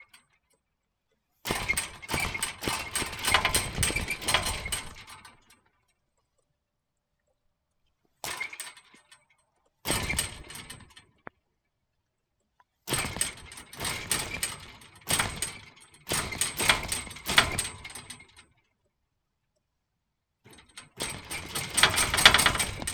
Does it sound metallic?
yes